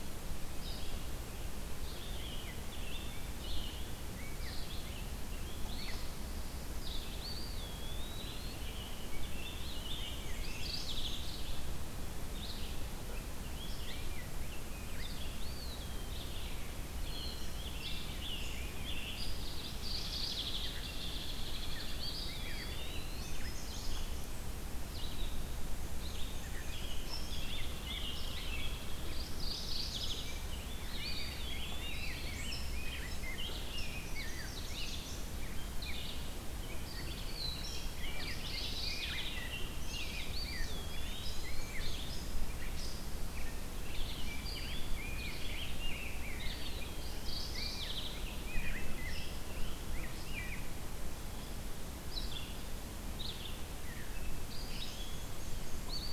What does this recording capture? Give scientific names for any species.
Vireo olivaceus, Pheucticus ludovicianus, Contopus virens, Piranga olivacea, Mniotilta varia, Geothlypis philadelphia, Dryobates villosus, Setophaga magnolia, Agelaius phoeniceus